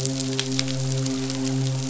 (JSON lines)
{"label": "biophony, midshipman", "recorder": "SoundTrap 500"}